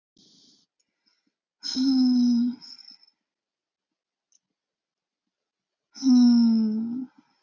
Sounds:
Sigh